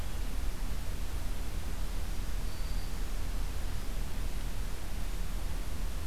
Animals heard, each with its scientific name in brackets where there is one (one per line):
Black-throated Green Warbler (Setophaga virens)